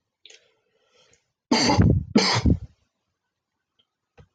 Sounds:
Cough